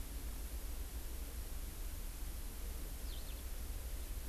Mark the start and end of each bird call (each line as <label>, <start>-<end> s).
Eurasian Skylark (Alauda arvensis), 3.0-3.3 s